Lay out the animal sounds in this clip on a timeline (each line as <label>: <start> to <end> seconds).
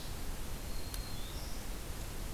Black-throated Green Warbler (Setophaga virens): 0.5 to 1.8 seconds